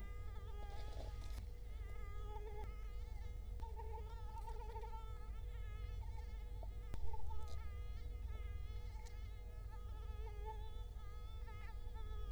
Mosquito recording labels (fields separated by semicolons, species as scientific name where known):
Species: Culex quinquefasciatus; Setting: cup